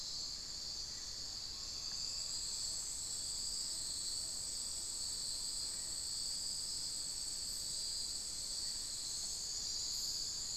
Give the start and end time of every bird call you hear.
[1.40, 2.50] Amazonian Pygmy-Owl (Glaucidium hardyi)

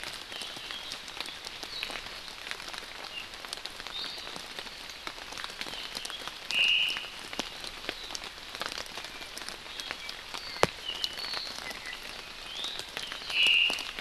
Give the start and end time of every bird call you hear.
[6.50, 7.10] Omao (Myadestes obscurus)
[9.60, 12.00] Apapane (Himatione sanguinea)
[12.50, 12.80] Iiwi (Drepanis coccinea)
[13.30, 14.00] Omao (Myadestes obscurus)

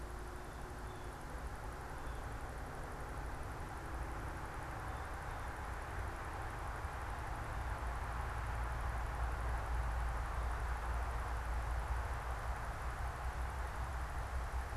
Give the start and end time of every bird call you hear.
[0.00, 5.50] Blue Jay (Cyanocitta cristata)

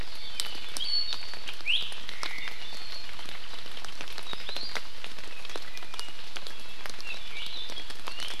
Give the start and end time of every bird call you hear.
[0.62, 1.82] Iiwi (Drepanis coccinea)
[2.12, 2.62] Omao (Myadestes obscurus)
[4.22, 4.82] Iiwi (Drepanis coccinea)

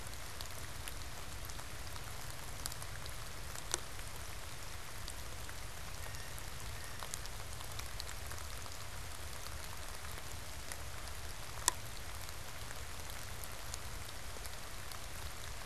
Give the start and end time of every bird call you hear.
[5.93, 7.23] Blue Jay (Cyanocitta cristata)

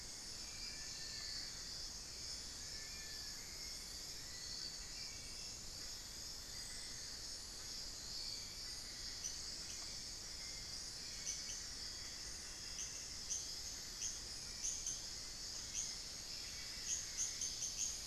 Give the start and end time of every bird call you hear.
[0.00, 3.77] Long-billed Woodcreeper (Nasica longirostris)
[0.00, 18.07] Hauxwell's Thrush (Turdus hauxwelli)
[0.00, 18.07] unidentified bird
[6.37, 7.27] Amazonian Barred-Woodcreeper (Dendrocolaptes certhia)
[10.77, 13.37] Cinnamon-throated Woodcreeper (Dendrexetastes rufigula)
[16.27, 17.47] Amazonian Barred-Woodcreeper (Dendrocolaptes certhia)

